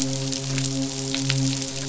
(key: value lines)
label: biophony, midshipman
recorder: SoundTrap 500